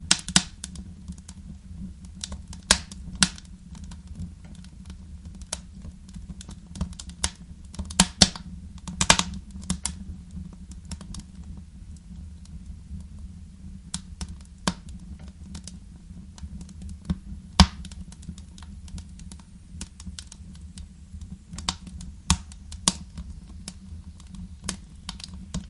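0.0s Branches are cracking loudly. 0.6s
0.0s A fire is burning. 25.7s
0.0s Branches are cracking. 25.7s
0.0s Wind is blowing. 25.7s
0.6s Branches crack quietly. 2.6s
2.6s Branches are cracking loudly. 3.5s
3.5s Branches crack quietly. 7.0s
6.9s Branches are cracking loudly. 10.1s
10.1s Branches crack quietly. 11.8s
13.8s Branches crack quietly. 15.8s
17.5s Branches are cracking loudly. 17.8s
17.9s Branches crack quietly. 21.6s
21.5s Branches are cracking loudly. 23.0s
23.0s Branches crack quietly. 25.7s

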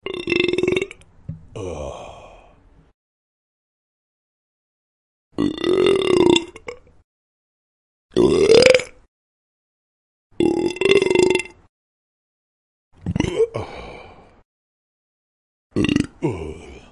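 0.0s A man burps casually. 2.7s
5.1s A loud, exaggerated burp breaks the silence. 7.0s
7.9s A loud, exaggerated burp breaks the silence. 9.1s
10.1s A loud, exaggerated burp breaks the silence. 11.7s
13.0s A man burps casually. 14.7s
15.6s A man burps casually. 16.9s

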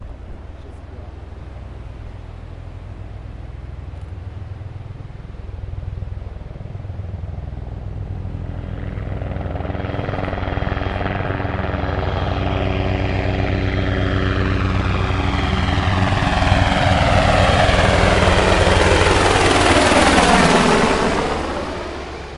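0.0s A steady, rushing monotone hum. 5.6s
4.3s Voices talking muffled and fading in the distance. 5.6s
5.6s A helicopter flies loudly and gradually gets nearer. 20.7s
20.7s A helicopter flies loudly, gradually decreasing in volume as it moves away. 22.4s

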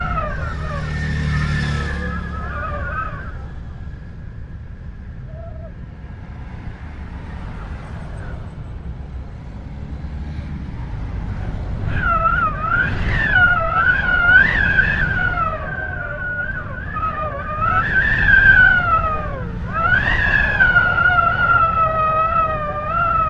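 0.0s A constant wind blowing as background noise outdoors. 11.8s
0.8s A motor vehicle passes by, muffled and fading into the distance. 11.7s
11.8s A loud and sharp wind blowing outdoors gradually decreases. 16.4s
16.4s Wind blowing loudly, gradually increasing in intensity before fading away. 19.7s
19.7s Constant loud wind blowing outdoors. 23.3s

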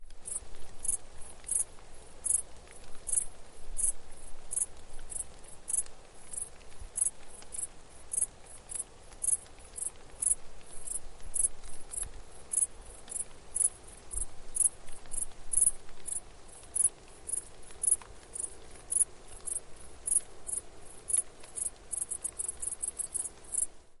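0.1s Grasshoppers chirping. 24.0s

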